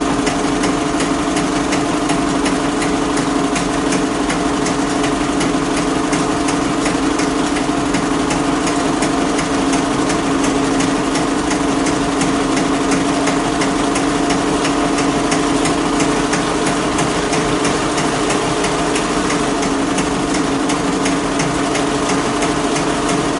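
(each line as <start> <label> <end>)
0.0 The sound of a working mechanism with periodic, repetitive knocking. 23.4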